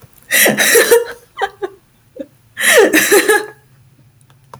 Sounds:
Laughter